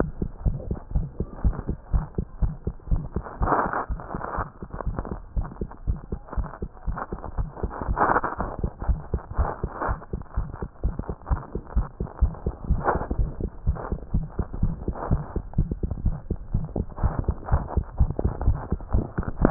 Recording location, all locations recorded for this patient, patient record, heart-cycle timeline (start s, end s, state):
tricuspid valve (TV)
aortic valve (AV)+pulmonary valve (PV)+tricuspid valve (TV)+mitral valve (MV)
#Age: Child
#Sex: Male
#Height: 93.0 cm
#Weight: 13.4 kg
#Pregnancy status: False
#Murmur: Present
#Murmur locations: aortic valve (AV)+mitral valve (MV)+pulmonary valve (PV)+tricuspid valve (TV)
#Most audible location: tricuspid valve (TV)
#Systolic murmur timing: Holosystolic
#Systolic murmur shape: Decrescendo
#Systolic murmur grading: II/VI
#Systolic murmur pitch: Low
#Systolic murmur quality: Harsh
#Diastolic murmur timing: nan
#Diastolic murmur shape: nan
#Diastolic murmur grading: nan
#Diastolic murmur pitch: nan
#Diastolic murmur quality: nan
#Outcome: Abnormal
#Campaign: 2015 screening campaign
0.00	0.30	unannotated
0.30	0.44	diastole
0.44	0.60	S1
0.60	0.68	systole
0.68	0.78	S2
0.78	0.91	diastole
0.91	1.10	S1
1.10	1.18	systole
1.18	1.28	S2
1.28	1.42	diastole
1.42	1.56	S1
1.56	1.66	systole
1.66	1.78	S2
1.78	1.91	diastole
1.91	2.06	S1
2.06	2.14	systole
2.14	2.24	S2
2.24	2.39	diastole
2.39	2.54	S1
2.54	2.64	systole
2.64	2.74	S2
2.74	2.89	diastole
2.89	3.04	S1
3.04	3.12	systole
3.12	3.24	S2
3.24	3.40	diastole
3.40	3.52	S1
3.52	3.64	systole
3.64	3.74	S2
3.74	3.88	diastole
3.88	4.02	S1
4.02	4.11	systole
4.11	4.20	S2
4.20	4.35	diastole
4.35	4.46	S1
4.46	4.60	systole
4.60	4.68	S2
4.68	4.84	diastole
4.84	4.98	S1
4.98	5.09	systole
5.09	5.20	S2
5.20	5.34	diastole
5.34	5.48	S1
5.48	5.59	systole
5.59	5.70	S2
5.70	5.85	diastole
5.85	5.99	S1
5.99	6.10	systole
6.10	6.20	S2
6.20	6.35	diastole
6.35	6.48	S1
6.48	6.60	systole
6.60	6.70	S2
6.70	6.85	diastole
6.85	7.00	S1
7.00	7.10	systole
7.10	7.18	S2
7.18	7.34	diastole
7.34	7.50	S1
7.50	7.61	systole
7.61	7.72	S2
7.72	7.86	diastole
7.86	8.00	S1
8.00	8.10	systole
8.10	8.22	S2
8.22	8.40	diastole
8.40	8.48	S1
8.48	8.60	systole
8.60	8.72	S2
8.72	8.86	diastole
8.86	9.02	S1
9.02	9.11	systole
9.11	9.22	S2
9.22	9.36	diastole
9.36	9.52	S1
9.52	9.62	systole
9.62	9.74	S2
9.74	9.87	diastole
9.87	9.98	S1
9.98	10.10	systole
10.10	10.20	S2
10.20	10.35	diastole
10.35	10.48	S1
10.48	10.59	systole
10.59	10.68	S2
10.68	10.82	diastole
10.82	10.96	S1
10.96	11.06	systole
11.06	11.16	S2
11.16	11.28	diastole
11.28	11.42	S1
11.42	11.53	systole
11.53	11.62	S2
11.62	11.73	diastole
11.73	11.88	S1
11.88	11.98	systole
11.98	12.08	S2
12.08	12.19	diastole
12.19	12.33	S1
12.33	12.44	systole
12.44	12.54	S2
12.54	12.67	diastole
12.67	12.84	S1
12.84	12.94	systole
12.94	13.02	S2
13.02	13.18	diastole
13.18	13.32	S1
13.32	13.44	systole
13.44	13.52	S2
13.52	13.66	diastole
13.66	13.80	S1
13.80	13.90	systole
13.90	14.00	S2
14.00	14.14	diastole
14.14	14.28	S1
14.28	14.36	systole
14.36	14.46	S2
14.46	14.60	diastole
14.60	14.76	S1
14.76	14.86	systole
14.86	14.96	S2
14.96	15.10	diastole
15.10	15.24	S1
15.24	15.32	systole
15.32	15.44	S2
15.44	15.56	diastole
15.56	15.70	S1
15.70	15.82	systole
15.82	15.92	S2
15.92	16.04	diastole
16.04	16.20	S1
16.20	16.26	systole
16.26	16.38	S2
16.38	16.52	diastole
16.52	16.64	S1
16.64	19.50	unannotated